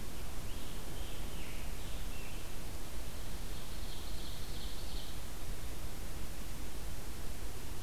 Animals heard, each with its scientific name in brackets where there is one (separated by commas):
Scarlet Tanager (Piranga olivacea), Ovenbird (Seiurus aurocapilla)